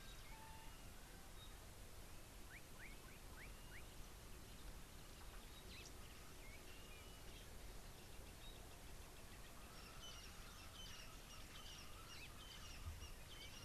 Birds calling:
Parrot-billed Sparrow (Passer gongonensis), Slate-colored Boubou (Laniarius funebris), Crested Francolin (Ortygornis sephaena)

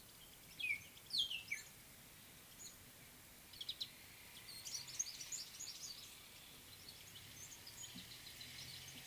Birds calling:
Spotted Morning-Thrush (Cichladusa guttata)

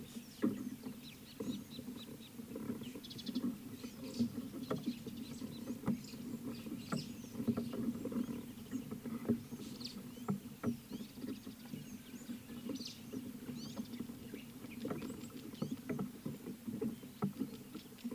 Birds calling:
Rüppell's Starling (Lamprotornis purpuroptera), Scarlet-chested Sunbird (Chalcomitra senegalensis)

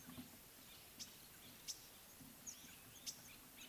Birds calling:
Common Bulbul (Pycnonotus barbatus), Green-winged Pytilia (Pytilia melba)

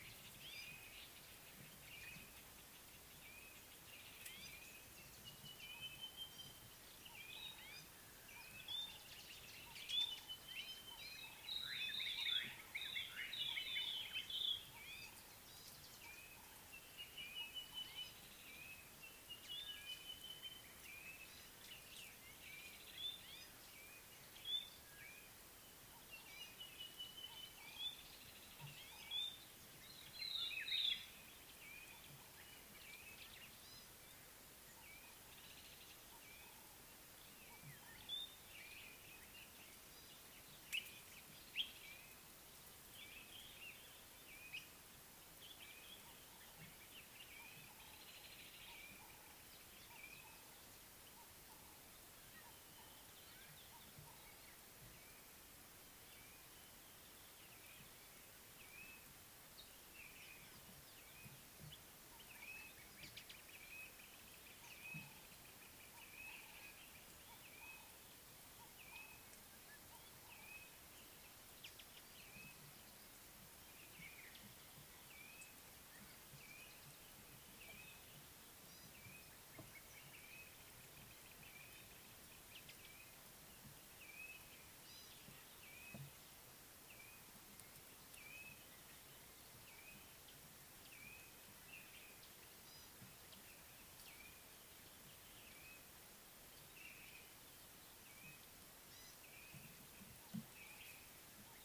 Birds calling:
White-browed Robin-Chat (Cossypha heuglini), Ring-necked Dove (Streptopelia capicola), African Thrush (Turdus pelios), Sulphur-breasted Bushshrike (Telophorus sulfureopectus), Gray-backed Camaroptera (Camaroptera brevicaudata), Blue-naped Mousebird (Urocolius macrourus)

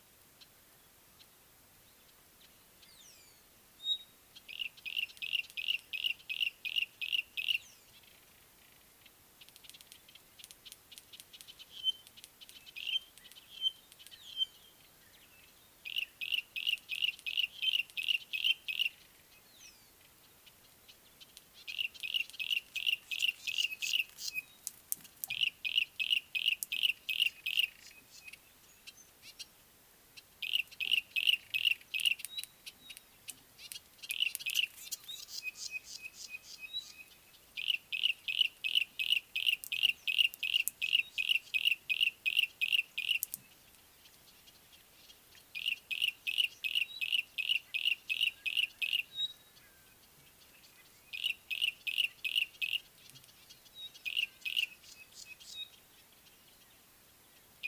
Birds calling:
Rufous Chatterer (Argya rubiginosa), Pygmy Batis (Batis perkeo), Yellow-breasted Apalis (Apalis flavida)

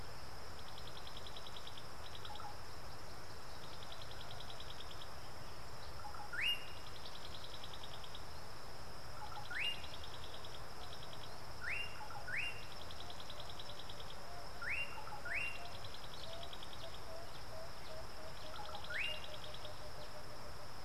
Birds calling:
Slate-colored Boubou (Laniarius funebris), African Bare-eyed Thrush (Turdus tephronotus)

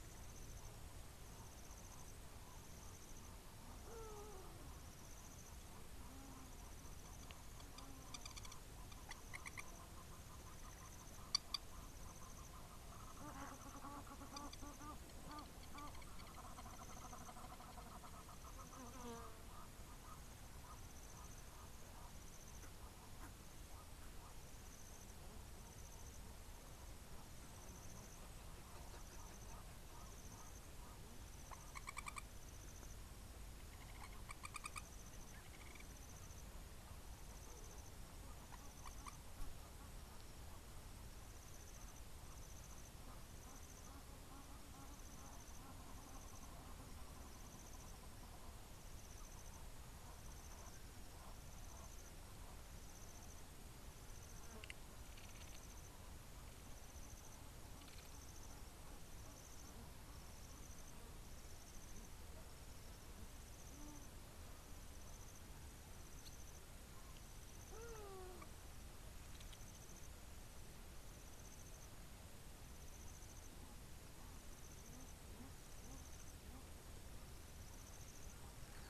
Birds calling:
Egyptian Goose (Alopochen aegyptiaca), Long-toed Lapwing (Vanellus crassirostris), Hadada Ibis (Bostrychia hagedash)

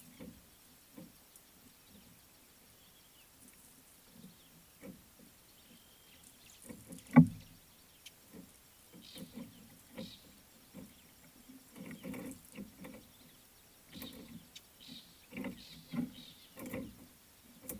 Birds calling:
Fork-tailed Drongo (Dicrurus adsimilis)

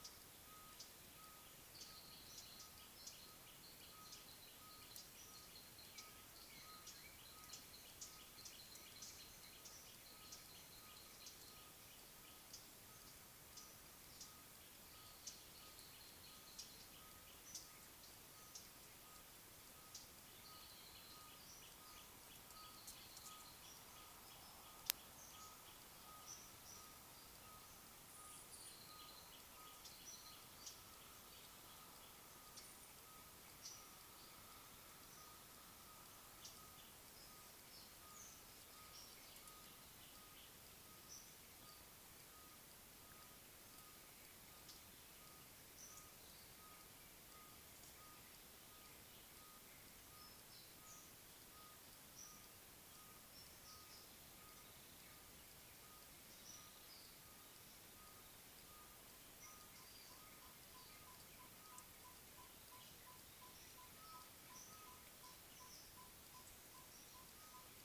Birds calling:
Gray Apalis (Apalis cinerea), Collared Sunbird (Hedydipna collaris)

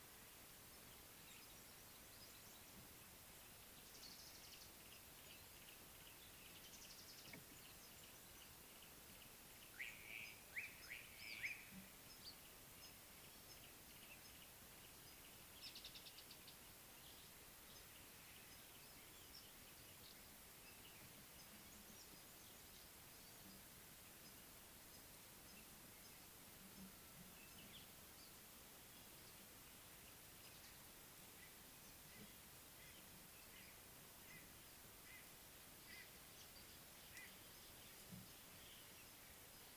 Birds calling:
Slate-colored Boubou (Laniarius funebris), Speckled Mousebird (Colius striatus), Yellow-breasted Apalis (Apalis flavida), Red-rumped Swallow (Cecropis daurica)

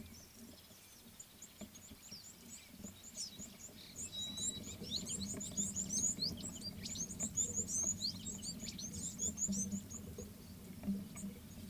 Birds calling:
Red-cheeked Cordonbleu (Uraeginthus bengalus)

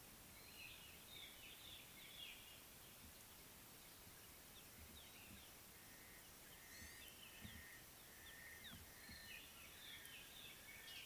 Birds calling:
Scarlet-chested Sunbird (Chalcomitra senegalensis), White-browed Robin-Chat (Cossypha heuglini), Gray-headed Bushshrike (Malaconotus blanchoti)

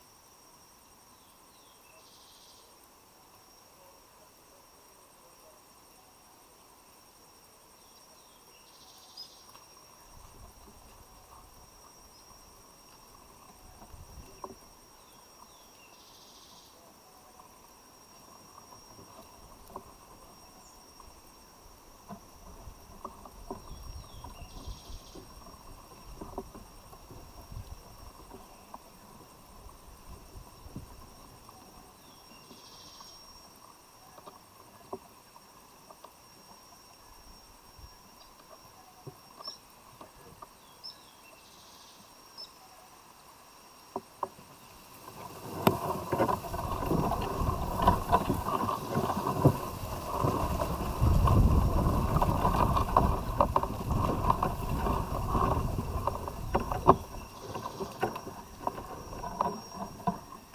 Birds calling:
Cinnamon-chested Bee-eater (Merops oreobates)

